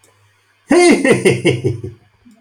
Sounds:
Laughter